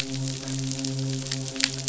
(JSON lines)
{"label": "biophony, midshipman", "recorder": "SoundTrap 500"}